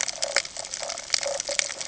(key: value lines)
label: ambient
recorder: HydroMoth